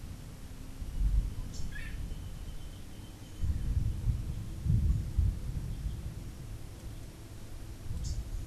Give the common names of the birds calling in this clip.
Long-tailed Manakin, Rufous-capped Warbler